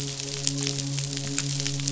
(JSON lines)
{"label": "biophony, midshipman", "recorder": "SoundTrap 500"}